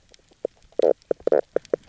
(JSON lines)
{"label": "biophony, knock croak", "recorder": "SoundTrap 300"}